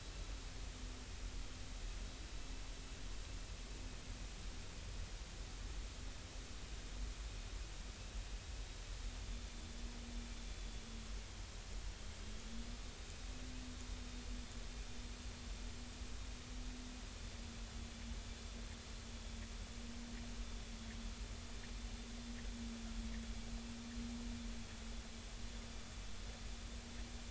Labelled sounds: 10.5	10.8	vessel noise, 3.4 to 3.5 kHz

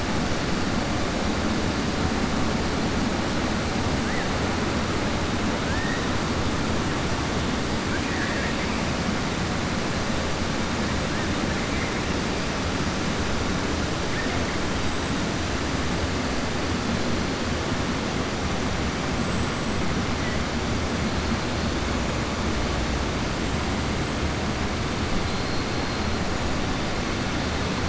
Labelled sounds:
7.8	8.6	killer whale, southern resident, 1.5 to 2.8 kHz

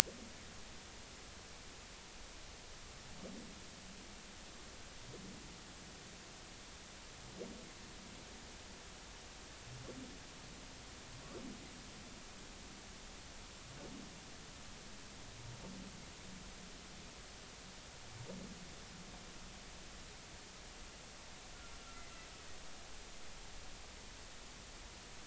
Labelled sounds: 21.8	22.1	humpback whale, 1.3 to 1.4 kHz

